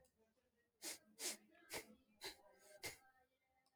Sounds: Sniff